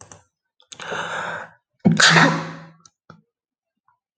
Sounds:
Sneeze